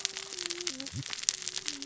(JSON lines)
{"label": "biophony, cascading saw", "recorder": "SoundTrap 600 or HydroMoth"}